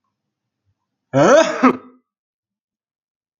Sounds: Sneeze